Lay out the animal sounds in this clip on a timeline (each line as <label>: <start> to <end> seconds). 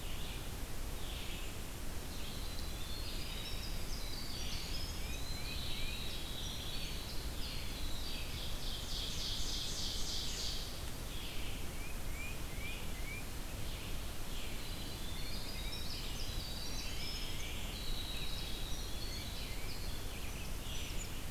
Red-eyed Vireo (Vireo olivaceus): 0.0 to 4.8 seconds
Winter Wren (Troglodytes hiemalis): 1.9 to 8.8 seconds
Eastern Wood-Pewee (Contopus virens): 4.3 to 5.7 seconds
White-breasted Nuthatch (Sitta carolinensis): 4.9 to 6.0 seconds
Red-eyed Vireo (Vireo olivaceus): 6.3 to 21.3 seconds
Ovenbird (Seiurus aurocapilla): 8.2 to 10.9 seconds
Tufted Titmouse (Baeolophus bicolor): 11.6 to 13.3 seconds
Winter Wren (Troglodytes hiemalis): 14.5 to 21.3 seconds
Tufted Titmouse (Baeolophus bicolor): 15.1 to 15.9 seconds